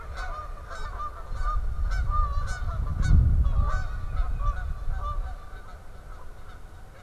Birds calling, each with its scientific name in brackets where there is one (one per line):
Tufted Titmouse (Baeolophus bicolor)
Canada Goose (Branta canadensis)